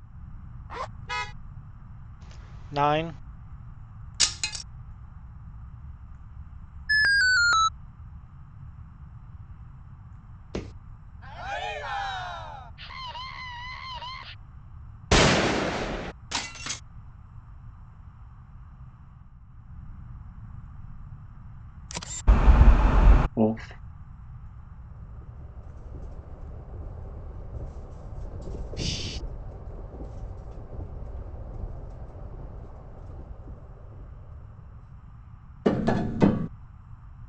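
A continuous background noise sits beneath the sounds. At 0.69 seconds, there is the sound of a zipper. Then at 1.01 seconds, you can hear a vehicle horn. At 2.72 seconds, someone says "nine." At 4.2 seconds, a plastic object falls. After that, at 6.89 seconds, a loud alarm is heard. At 10.53 seconds, wooden furniture moves. At 11.21 seconds, there is cheering. Following that, at 12.77 seconds, someone screams. At 15.1 seconds, the sound of loud gunfire rings out. At 16.3 seconds, glass shatters. From 24.09 to 35.6 seconds, a train can be heard, fading in and then fading out. At 21.87 seconds comes the sound of a single-lens reflex camera. Then, at 22.27 seconds, loud wind is audible. Afterwards, at 23.36 seconds, someone says "Off." Later, at 28.75 seconds, breathing is heard. Following that, at 35.65 seconds, tapping is heard.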